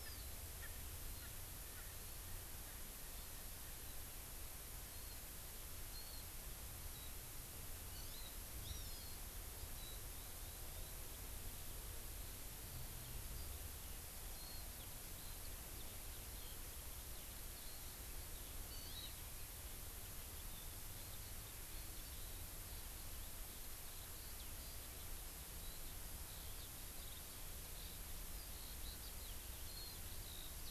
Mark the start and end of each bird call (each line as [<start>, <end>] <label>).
[0.00, 0.10] Erckel's Francolin (Pternistis erckelii)
[0.60, 0.70] Erckel's Francolin (Pternistis erckelii)
[1.20, 1.30] Erckel's Francolin (Pternistis erckelii)
[4.90, 5.10] Warbling White-eye (Zosterops japonicus)
[5.90, 6.20] Warbling White-eye (Zosterops japonicus)
[6.90, 7.10] Warbling White-eye (Zosterops japonicus)
[7.90, 8.30] Hawaii Amakihi (Chlorodrepanis virens)
[8.60, 9.00] Hawaii Amakihi (Chlorodrepanis virens)
[9.80, 10.90] Warbling White-eye (Zosterops japonicus)
[14.30, 14.60] Warbling White-eye (Zosterops japonicus)
[15.10, 17.80] Eurasian Skylark (Alauda arvensis)
[18.70, 19.10] Hawaii Amakihi (Chlorodrepanis virens)
[20.50, 30.70] Eurasian Skylark (Alauda arvensis)